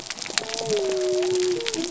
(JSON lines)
{"label": "biophony", "recorder": "SoundTrap 300"}